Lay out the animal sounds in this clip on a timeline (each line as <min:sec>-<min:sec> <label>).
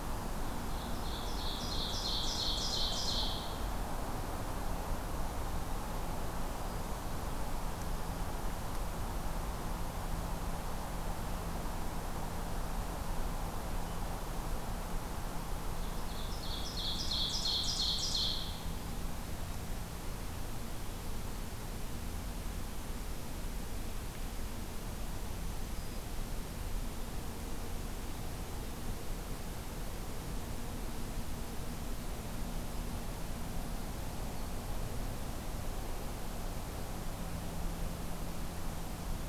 0:00.5-0:03.7 Ovenbird (Seiurus aurocapilla)
0:15.9-0:18.8 Ovenbird (Seiurus aurocapilla)
0:25.1-0:26.4 Black-throated Green Warbler (Setophaga virens)